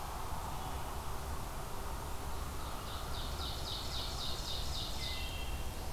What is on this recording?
Ovenbird, Wood Thrush